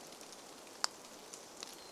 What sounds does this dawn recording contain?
Hermit Thrush song, rain